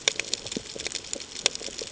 {"label": "ambient", "recorder": "HydroMoth"}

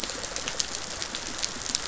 {"label": "biophony, rattle response", "recorder": "SoundTrap 500"}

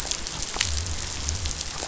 {"label": "biophony", "recorder": "SoundTrap 500"}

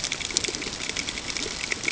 {"label": "ambient", "recorder": "HydroMoth"}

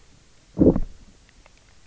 {"label": "biophony, low growl", "recorder": "SoundTrap 300"}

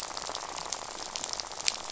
{"label": "biophony, rattle", "recorder": "SoundTrap 500"}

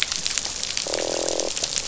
{"label": "biophony, croak", "recorder": "SoundTrap 500"}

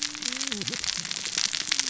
{"label": "biophony, cascading saw", "recorder": "SoundTrap 600 or HydroMoth"}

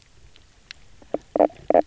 {"label": "biophony, knock croak", "recorder": "SoundTrap 300"}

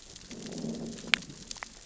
{"label": "biophony, growl", "recorder": "SoundTrap 600 or HydroMoth"}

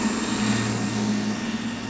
{"label": "anthrophony, boat engine", "recorder": "SoundTrap 500"}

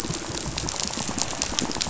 {"label": "biophony, rattle", "recorder": "SoundTrap 500"}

